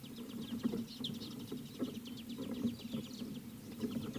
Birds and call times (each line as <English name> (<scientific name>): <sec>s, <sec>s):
Scarlet-chested Sunbird (Chalcomitra senegalensis): 1.0s